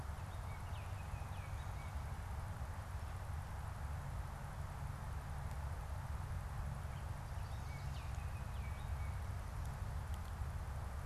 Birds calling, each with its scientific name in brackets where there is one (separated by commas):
Chestnut-sided Warbler (Setophaga pensylvanica), Baltimore Oriole (Icterus galbula)